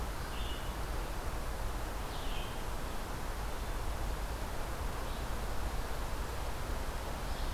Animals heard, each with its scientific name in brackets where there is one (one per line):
Red-eyed Vireo (Vireo olivaceus)